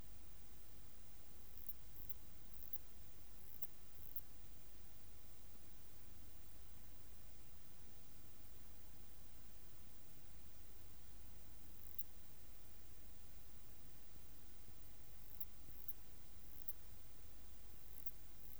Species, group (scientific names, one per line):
Poecilimon nobilis
Orthoptera